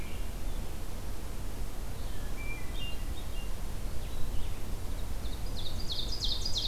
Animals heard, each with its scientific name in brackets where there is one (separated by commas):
Blue-headed Vireo (Vireo solitarius), Hermit Thrush (Catharus guttatus), Ovenbird (Seiurus aurocapilla)